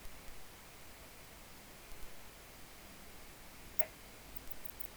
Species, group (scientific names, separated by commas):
Poecilimon antalyaensis, Orthoptera